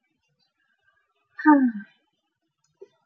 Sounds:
Sigh